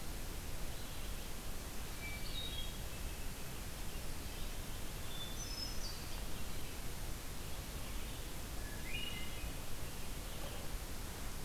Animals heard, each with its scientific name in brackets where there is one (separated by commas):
Hermit Thrush (Catharus guttatus)